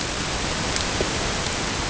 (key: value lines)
label: ambient
recorder: HydroMoth